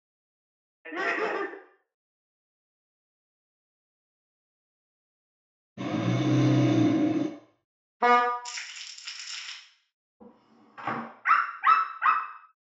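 First, laughter is heard. After that, you can hear an engine. Afterwards, the sound of a vehicle horn is audible. Later, quiet crumpling can be heard. Following that, a wooden drawer closes. After that, the sound of a dog is heard.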